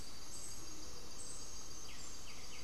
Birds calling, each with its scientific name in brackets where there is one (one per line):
Gray-fronted Dove (Leptotila rufaxilla)
White-winged Becard (Pachyramphus polychopterus)